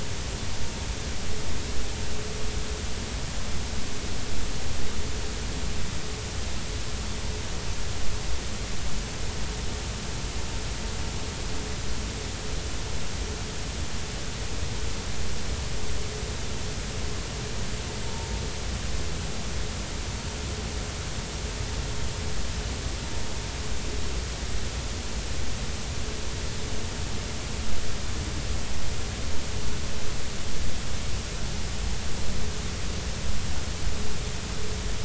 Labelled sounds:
18.0	18.3	vessel noise, 0.86 to 0.99 kHz

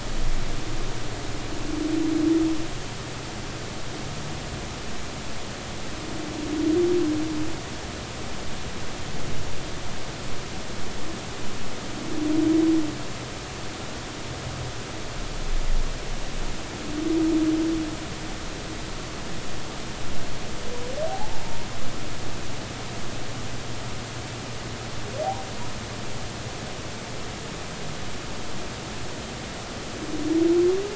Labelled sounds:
21.1	21.4	humpback whale, 0.80 to 0.96 kHz

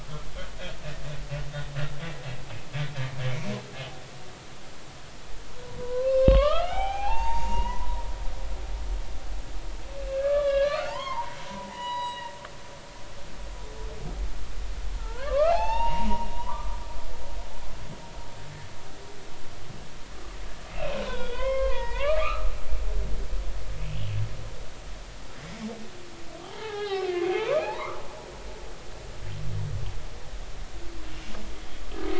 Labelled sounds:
5.8	8.0	humpback whale, 0.80 to 4.7 kHz
10.1	12.4	humpback whale, 0.83 to 6.8 kHz
15.0	16.8	humpback whale, 0.80 to 4.7 kHz
20.7	22.5	humpback whale, 0.86 to 3.7 kHz
23.9	24.2	humpback whale, 2.8 to 3.0 kHz
26.4	28.0	humpback whale, 0.80 to 4.2 kHz

